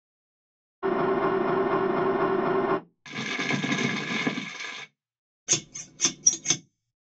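At 0.82 seconds, an engine idles. Then at 3.03 seconds, crackling can be heard. After that, at 5.47 seconds, the sound of scissors is audible.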